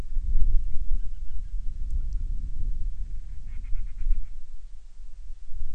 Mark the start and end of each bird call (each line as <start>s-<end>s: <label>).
0.9s-2.0s: Band-rumped Storm-Petrel (Hydrobates castro)
3.4s-4.4s: Band-rumped Storm-Petrel (Hydrobates castro)